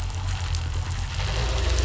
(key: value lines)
label: anthrophony, boat engine
recorder: SoundTrap 500